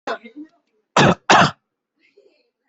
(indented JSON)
{
  "expert_labels": [
    {
      "quality": "ok",
      "cough_type": "dry",
      "dyspnea": false,
      "wheezing": false,
      "stridor": false,
      "choking": false,
      "congestion": false,
      "nothing": true,
      "diagnosis": "upper respiratory tract infection",
      "severity": "unknown"
    }
  ],
  "age": 30,
  "gender": "female",
  "respiratory_condition": false,
  "fever_muscle_pain": true,
  "status": "symptomatic"
}